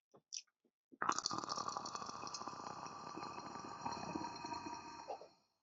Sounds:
Throat clearing